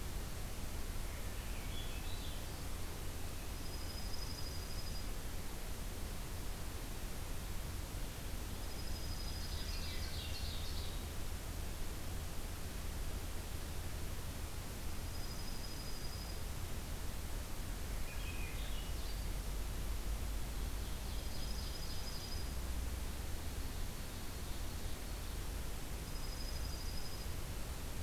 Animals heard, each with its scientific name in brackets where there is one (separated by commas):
Dark-eyed Junco (Junco hyemalis), Swainson's Thrush (Catharus ustulatus), Ovenbird (Seiurus aurocapilla)